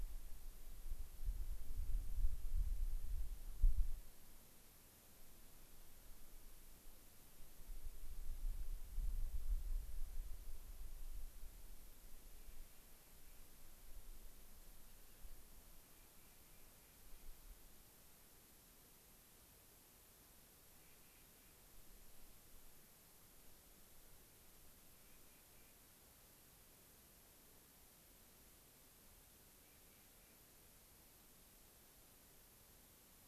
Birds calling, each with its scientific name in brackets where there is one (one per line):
Clark's Nutcracker (Nucifraga columbiana)